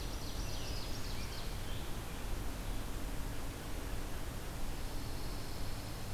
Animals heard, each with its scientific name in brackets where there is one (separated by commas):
Black-throated Green Warbler (Setophaga virens), Pine Warbler (Setophaga pinus), American Robin (Turdus migratorius), Ovenbird (Seiurus aurocapilla)